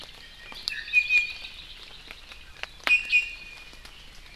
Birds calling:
Iiwi (Drepanis coccinea), Hawaii Creeper (Loxops mana)

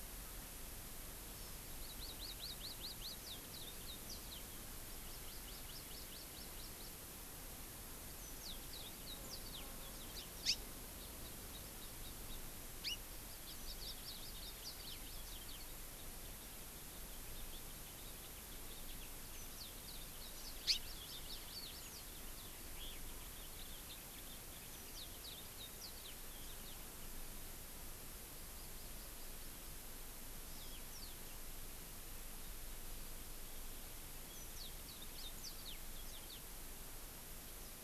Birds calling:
Hawaii Amakihi (Chlorodrepanis virens), Yellow-fronted Canary (Crithagra mozambica), House Finch (Haemorhous mexicanus)

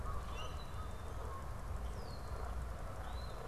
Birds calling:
Common Grackle (Quiscalus quiscula), Canada Goose (Branta canadensis), unidentified bird, Eastern Phoebe (Sayornis phoebe)

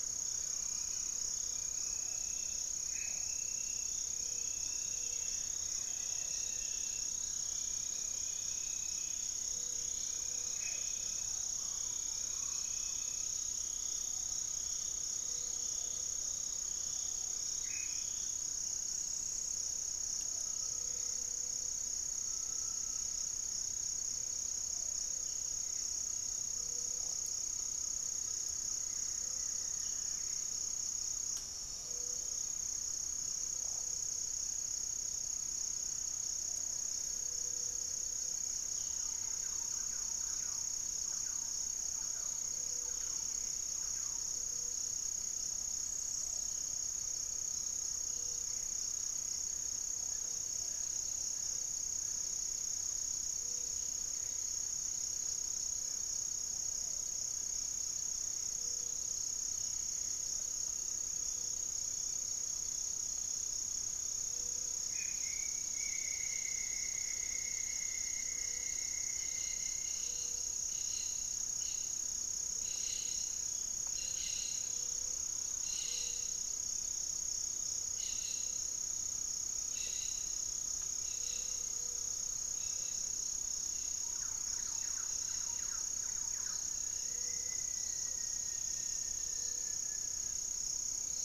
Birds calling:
Hauxwell's Thrush (Turdus hauxwelli), Buff-throated Woodcreeper (Xiphorhynchus guttatus), Rufous-fronted Antthrush (Formicarius rufifrons), Gray-cowled Wood-Rail (Aramides cajaneus), Gray-fronted Dove (Leptotila rufaxilla), Amazonian Barred-Woodcreeper (Dendrocolaptes certhia), Thrush-like Wren (Campylorhynchus turdinus), unidentified bird, Cobalt-winged Parakeet (Brotogeris cyanoptera), Little Tinamou (Crypturellus soui), Great Antshrike (Taraba major), Black-faced Antthrush (Formicarius analis)

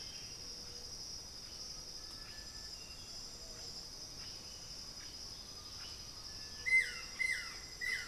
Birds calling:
Striped Cuckoo (Tapera naevia), Blue-headed Parrot (Pionus menstruus), Undulated Tinamou (Crypturellus undulatus), Buff-throated Woodcreeper (Xiphorhynchus guttatus), Buff-throated Saltator (Saltator maximus)

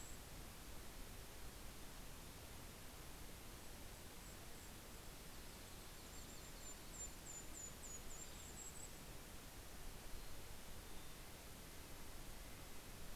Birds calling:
Yellow-rumped Warbler (Setophaga coronata), Red-breasted Nuthatch (Sitta canadensis), Golden-crowned Kinglet (Regulus satrapa), Mountain Chickadee (Poecile gambeli)

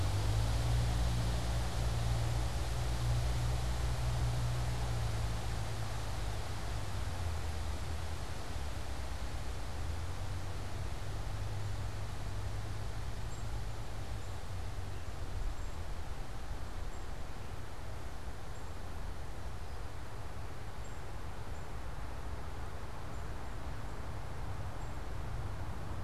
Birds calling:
unidentified bird

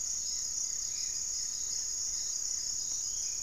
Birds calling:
Gray-fronted Dove (Leptotila rufaxilla), Black-faced Antthrush (Formicarius analis), Goeldi's Antbird (Akletos goeldii)

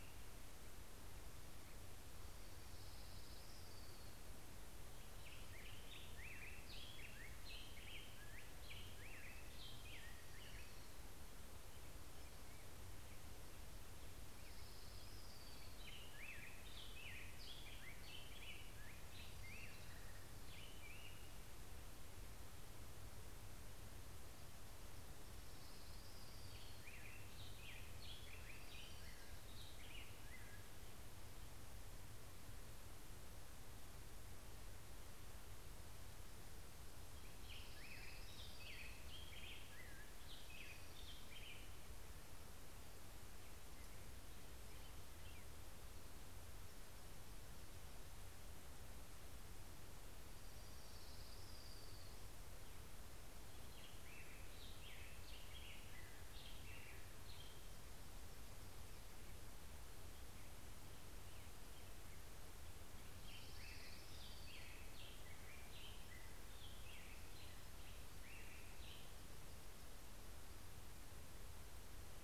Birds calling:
Black-headed Grosbeak (Pheucticus melanocephalus), Orange-crowned Warbler (Leiothlypis celata)

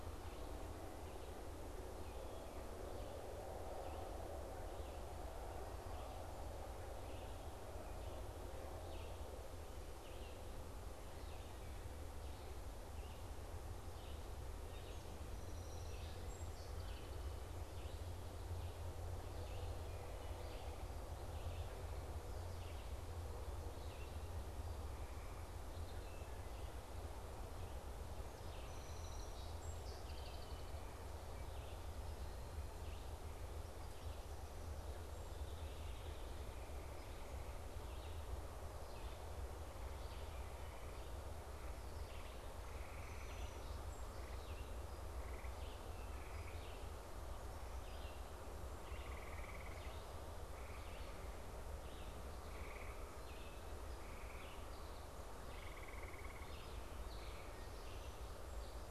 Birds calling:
Song Sparrow (Melospiza melodia), unidentified bird, Red-eyed Vireo (Vireo olivaceus)

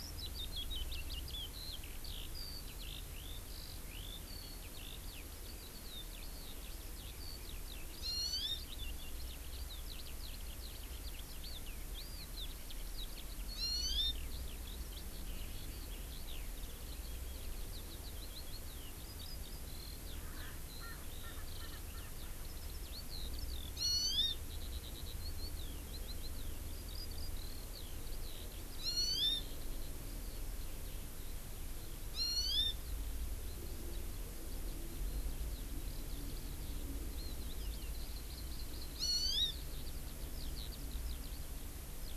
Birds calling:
Erckel's Francolin (Pternistis erckelii), Hawaii Amakihi (Chlorodrepanis virens), Eurasian Skylark (Alauda arvensis)

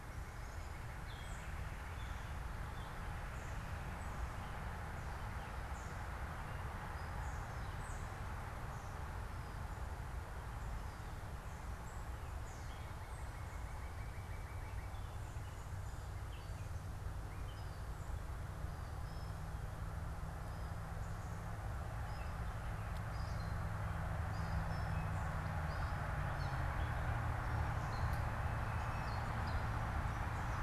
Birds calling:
Northern Cardinal (Cardinalis cardinalis), unidentified bird, Tufted Titmouse (Baeolophus bicolor)

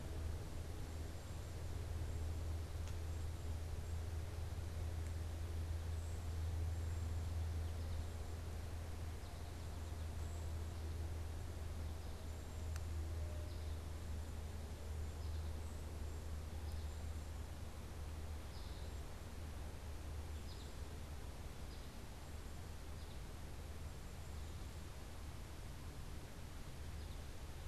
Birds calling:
Cedar Waxwing (Bombycilla cedrorum), American Goldfinch (Spinus tristis)

